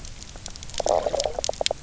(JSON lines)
{"label": "biophony, knock croak", "recorder": "SoundTrap 300"}